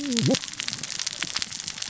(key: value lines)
label: biophony, cascading saw
recorder: SoundTrap 600 or HydroMoth